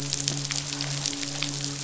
{"label": "biophony, midshipman", "recorder": "SoundTrap 500"}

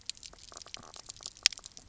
{"label": "biophony, knock croak", "recorder": "SoundTrap 300"}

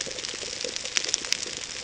{"label": "ambient", "recorder": "HydroMoth"}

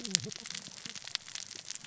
{"label": "biophony, cascading saw", "recorder": "SoundTrap 600 or HydroMoth"}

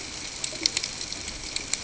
{"label": "ambient", "recorder": "HydroMoth"}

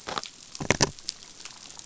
{"label": "biophony", "recorder": "SoundTrap 500"}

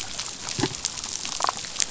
{"label": "biophony, damselfish", "recorder": "SoundTrap 500"}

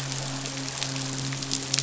{"label": "biophony, midshipman", "recorder": "SoundTrap 500"}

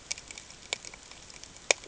{"label": "ambient", "recorder": "HydroMoth"}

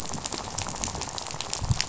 {"label": "biophony, rattle", "recorder": "SoundTrap 500"}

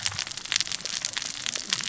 {"label": "biophony, cascading saw", "recorder": "SoundTrap 600 or HydroMoth"}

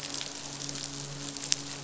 {"label": "biophony, midshipman", "recorder": "SoundTrap 500"}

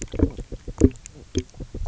{"label": "biophony, knock croak", "recorder": "SoundTrap 300"}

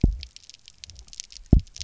{"label": "biophony, double pulse", "recorder": "SoundTrap 300"}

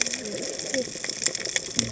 {"label": "biophony, cascading saw", "recorder": "HydroMoth"}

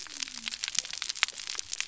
{"label": "biophony", "recorder": "SoundTrap 300"}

